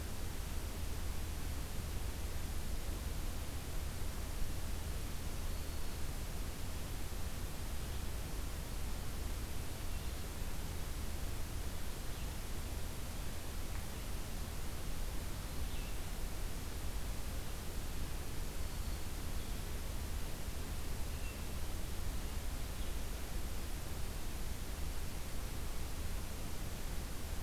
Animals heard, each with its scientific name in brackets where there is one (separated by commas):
Black-throated Green Warbler (Setophaga virens), Blue-headed Vireo (Vireo solitarius)